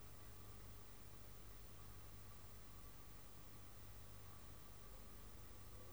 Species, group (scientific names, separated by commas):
Poecilimon ornatus, Orthoptera